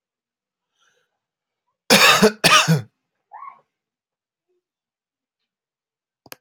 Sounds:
Cough